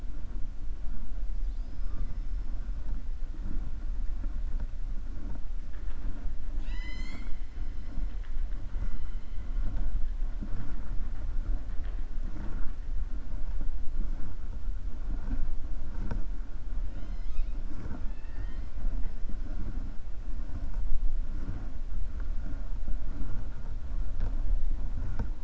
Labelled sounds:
6.5	7.4	killer whale, 0.65 to 7.4 kHz

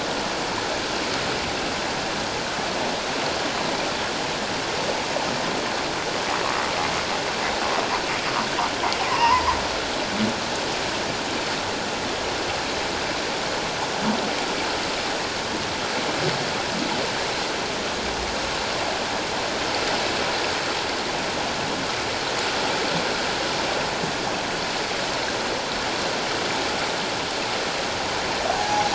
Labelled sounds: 9.1	9.4	humpback whale, 0.88 to 2.1 kHz
28.6	28.9	humpback whale, 0.78 to 0.91 kHz

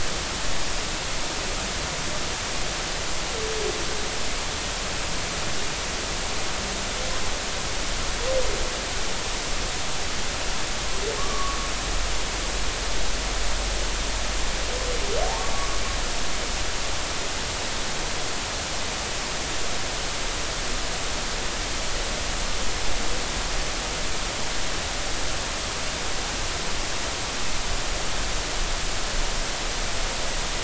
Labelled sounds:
11.2	11.6	humpback whale, 1.0 to 1.3 kHz
15.5	15.8	humpback whale, 1.0 to 1.2 kHz

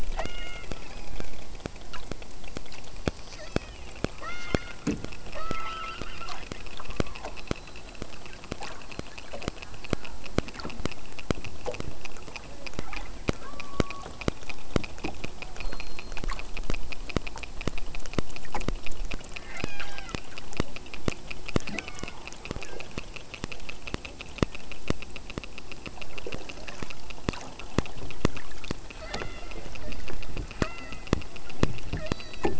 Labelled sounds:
0.2	1.6	killer whale, southern Alaska resident, 0.76 to 8.0 kHz
2.9	3.9	killer whale, southern Alaska resident, 0.95 to 6.1 kHz
4.2	4.8	killer whale, southern Alaska resident, 0.87 to 5.8 kHz
5.3	7.4	killer whale, southern Alaska resident, 0.33 to 4.8 kHz
13.4	14.2	killer whale, southern Alaska resident, 0.98 to 1.6 kHz
19.5	20.2	killer whale, southern Alaska resident, 0.57 to 8.0 kHz
21.6	22.3	killer whale, southern Alaska resident, 0.54 to 7.9 kHz
22.6	22.9	killer whale, southern Alaska resident, 0.90 to 2.8 kHz
28.9	30.2	killer whale, southern Alaska resident, 0.87 to 5.2 kHz
30.6	31.2	killer whale, southern Alaska resident, 0.49 to 5.0 kHz
31.9	32.5	killer whale, southern Alaska resident, 0.41 to 7.5 kHz

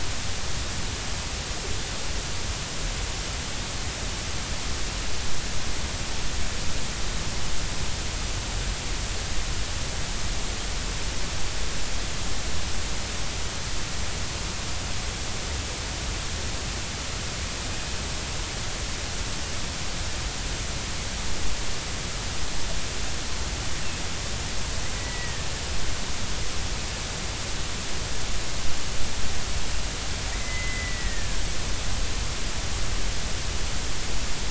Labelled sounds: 25.0	25.5	killer whale, Bigg's (transient), 1.7 to 2.0 kHz
30.3	31.4	killer whale, Bigg's (transient), 1.6 to 2.1 kHz

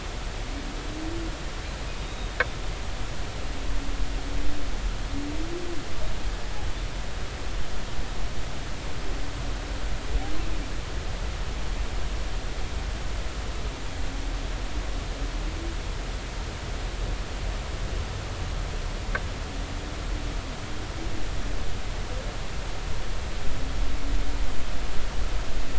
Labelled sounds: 2.0	2.4	humpback whale, 3.6 to 3.8 kHz

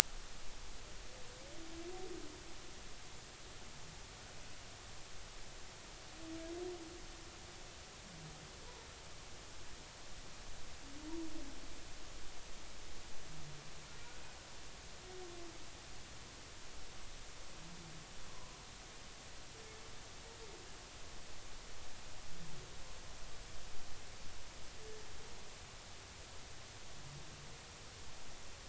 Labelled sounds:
18.3	18.6	humpback whale, 0.93 to 1.2 kHz

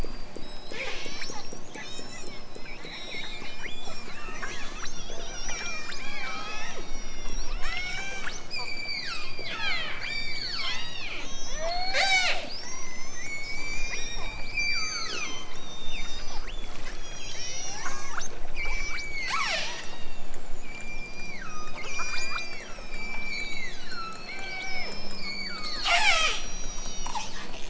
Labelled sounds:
0.5	1.4	killer whale, southern Alaska resident, 0.18 to 8.0 kHz
1.7	2.4	killer whale, southern Alaska resident, 1.6 to 7.5 kHz
2.9	12.5	killer whale, southern Alaska resident, 0.23 to 8.0 kHz
13.1	20.0	killer whale, southern Alaska resident, 0.32 to 8.0 kHz
20.6	27.2	killer whale, southern Alaska resident, 0.32 to 8.0 kHz

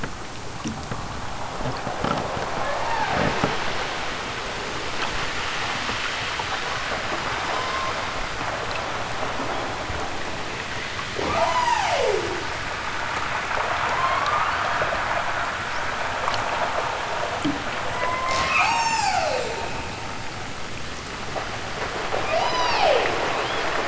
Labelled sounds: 2.7	3.5	killer whale, southern Alaska resident, 0.32 to 5.5 kHz
7.4	8.1	killer whale, southern Alaska resident, 0.32 to 3.5 kHz
11.2	12.6	killer whale, southern Alaska resident, 0.18 to 8.0 kHz
13.6	14.8	killer whale, southern Alaska resident, 0.46 to 5.2 kHz
18.0	19.6	killer whale, southern Alaska resident, 0.28 to 8.0 kHz
22.3	23.8	killer whale, southern Alaska resident, 0.23 to 7.6 kHz

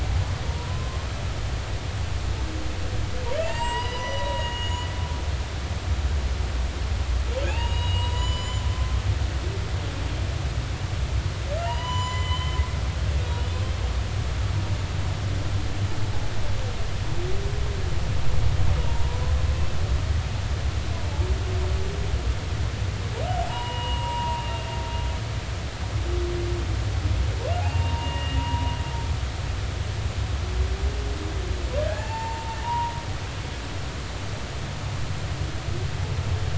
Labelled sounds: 0.5	1.0	humpback whale, 0.90 to 1.1 kHz
3.4	4.9	humpback whale, 0.86 to 7.8 kHz
7.4	8.6	humpback whale, 0.80 to 7.1 kHz
11.6	12.6	humpback whale, 0.90 to 7.2 kHz
18.8	19.2	humpback whale, 0.86 to 1.0 kHz
23.5	24.6	humpback whale, 0.83 to 2.9 kHz
27.6	28.7	humpback whale, 0.80 to 2.9 kHz
31.9	32.9	humpback whale, 0.80 to 7.3 kHz

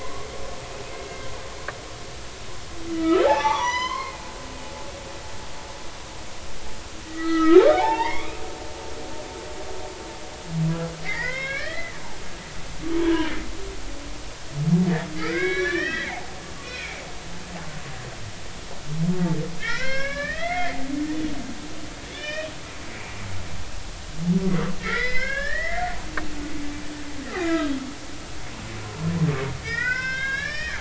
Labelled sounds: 2.9	4.3	humpback whale, 0.80 to 6.2 kHz
7.0	8.3	humpback whale, 0.80 to 4.0 kHz
11.0	11.9	humpback whale, 0.96 to 4.5 kHz
13.0	13.3	humpback whale, 0.93 to 1.1 kHz
15.2	16.3	humpback whale, 0.80 to 5.9 kHz
16.6	17.0	humpback whale, 1.3 to 2.6 kHz
19.6	20.8	humpback whale, 0.90 to 5.6 kHz
22.1	23.2	humpback whale, 1.7 to 5.6 kHz
24.8	25.8	humpback whale, 1.3 to 5.5 kHz
27.4	27.7	humpback whale, 1.2 to 3.8 kHz
29.6	30.7	humpback whale, 1.0 to 5.7 kHz

